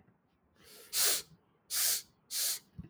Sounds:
Sniff